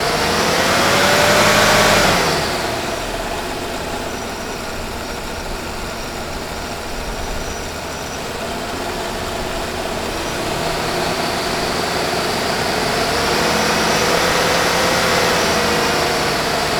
Is the vehicle revving up?
yes